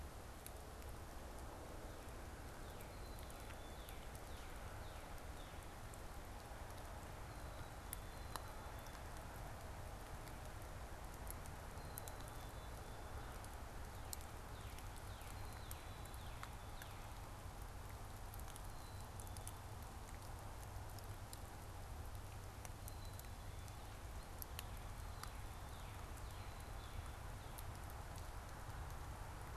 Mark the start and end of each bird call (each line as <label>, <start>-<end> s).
Northern Cardinal (Cardinalis cardinalis), 2.3-5.9 s
Black-capped Chickadee (Poecile atricapillus), 2.5-4.2 s
Black-capped Chickadee (Poecile atricapillus), 7.8-9.2 s
Black-capped Chickadee (Poecile atricapillus), 11.6-13.0 s
Northern Cardinal (Cardinalis cardinalis), 14.2-17.5 s
Black-capped Chickadee (Poecile atricapillus), 15.1-16.3 s
Black-capped Chickadee (Poecile atricapillus), 18.7-19.6 s
Black-capped Chickadee (Poecile atricapillus), 22.7-23.8 s
Northern Cardinal (Cardinalis cardinalis), 24.7-27.4 s